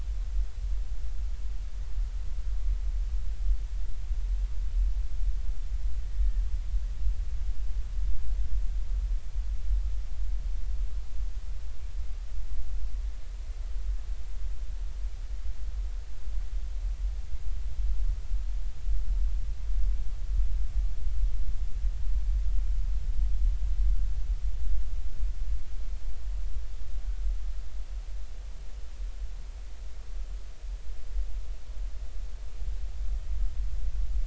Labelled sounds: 6.1	6.4	killer whale, Bigg's (transient), 1.8 to 1.9 kHz

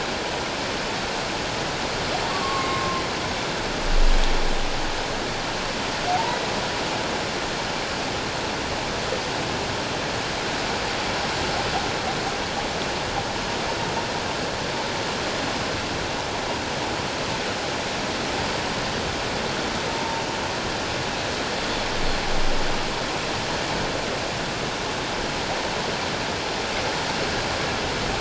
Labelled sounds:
2.3	3.0	humpback whale, 1.0 to 1.2 kHz
6.1	6.5	humpback whale, 0.78 to 2.0 kHz
19.9	20.2	humpback whale, 0.84 to 1.0 kHz

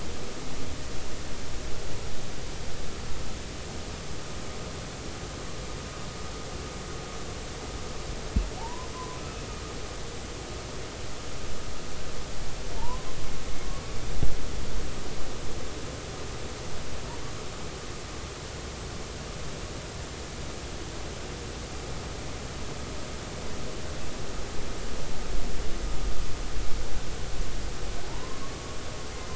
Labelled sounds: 8.6	9.2	humpback whale, 0.80 to 1.1 kHz
12.8	13.0	humpback whale, 0.83 to 1.1 kHz
28.0	28.4	humpback whale, 0.80 to 1.1 kHz

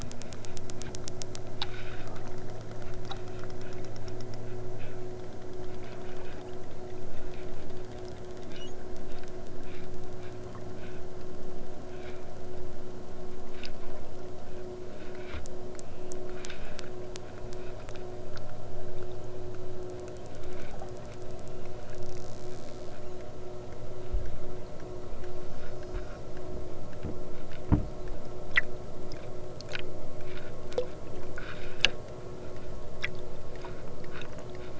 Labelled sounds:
25.2	26.3	killer whale, southern Alaska resident, 3.9 to 8.0 kHz

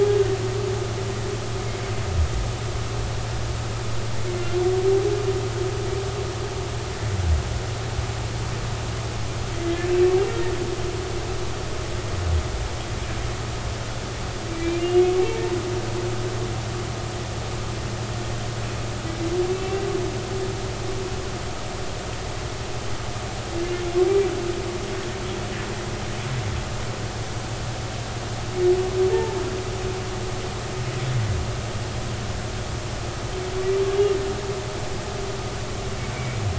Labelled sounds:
9.6	9.9	humpback whale, 1.7 to 1.8 kHz
19.5	19.8	humpback whale, 2.6 to 2.8 kHz
29.1	29.4	humpback whale, 0.83 to 0.96 kHz
36.1	36.4	humpback whale, 2.1 to 2.4 kHz

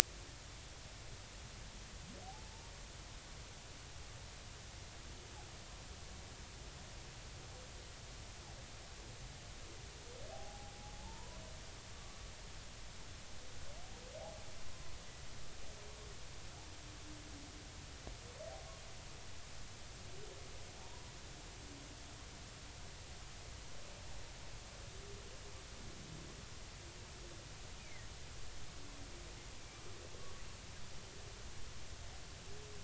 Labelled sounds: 2.2	2.5	humpback whale, 0.80 to 0.93 kHz
10.3	10.7	humpback whale, 0.80 to 0.86 kHz
12.0	12.4	humpback whale, 0.83 to 1.0 kHz
20.8	21.1	humpback whale, 0.80 to 1.0 kHz
27.8	28.1	humpback whale, 1.8 to 2.5 kHz

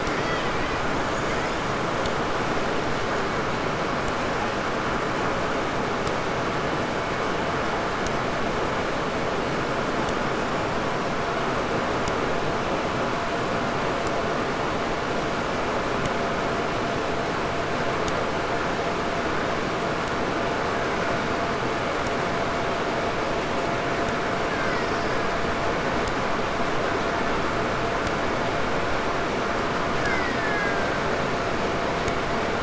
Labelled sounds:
0.0	1.9	killer whale, 1.3 to 8.0 kHz
20.5	21.6	killer whale, Bigg's (transient), 1.1 to 2.9 kHz
24.4	25.6	killer whale, Bigg's (transient), 1.2 to 8.0 kHz
29.9	31.3	killer whale, Bigg's (transient), 1.2 to 6.1 kHz

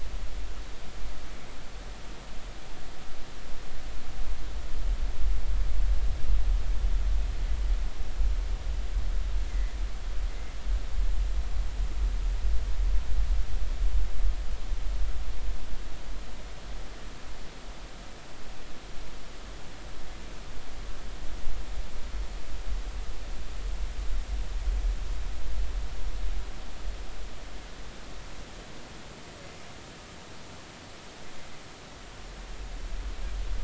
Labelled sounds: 9.5	9.8	humpback whale, 1.7 to 2.1 kHz

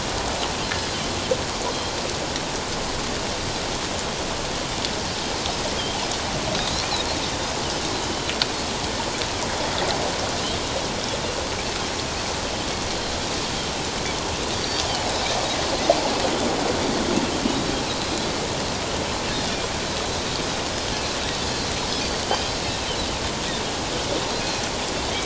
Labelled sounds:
14.6	14.9	Pacific white-sided dolphin, 4.5 to 4.8 kHz
22.0	22.3	Pacific white-sided dolphin, 4.5 to 4.7 kHz

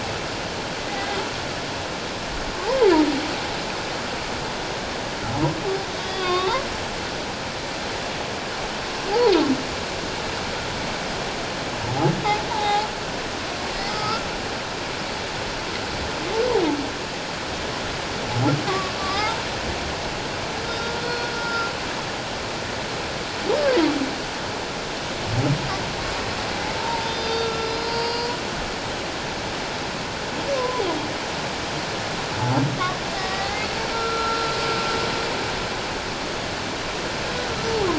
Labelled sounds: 2.6	2.9	humpback whale, 0.78 to 1.1 kHz
6.0	6.5	humpback whale, 1.0 to 4.9 kHz
12.5	12.9	humpback whale, 0.78 to 1.0 kHz
13.9	14.3	humpback whale, 1.2 to 1.4 kHz
18.7	19.4	humpback whale, 0.78 to 1.4 kHz
20.6	21.7	humpback whale, 1.3 to 5.2 kHz
23.6	23.9	humpback whale, 0.91 to 1.2 kHz
26.8	28.4	humpback whale, 0.88 to 6.0 kHz
30.5	30.8	humpback whale, 0.94 to 1.1 kHz
33.2	34.5	humpback whale, 1.1 to 4.1 kHz

